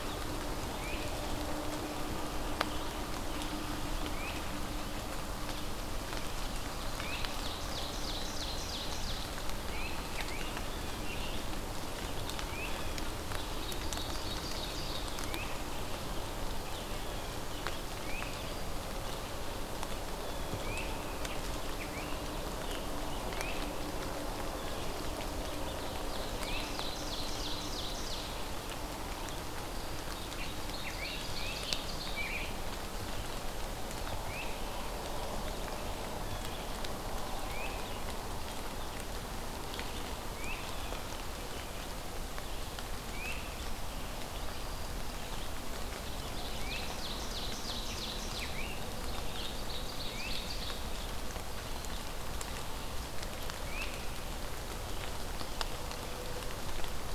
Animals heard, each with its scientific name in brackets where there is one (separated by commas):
Ovenbird (Seiurus aurocapilla), Great Crested Flycatcher (Myiarchus crinitus), Blue Jay (Cyanocitta cristata), Scarlet Tanager (Piranga olivacea)